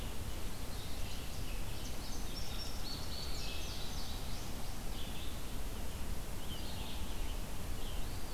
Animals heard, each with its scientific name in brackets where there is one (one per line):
Red-eyed Vireo (Vireo olivaceus)
American Robin (Turdus migratorius)
Indigo Bunting (Passerina cyanea)
Eastern Wood-Pewee (Contopus virens)